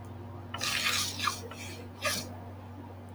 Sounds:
Sniff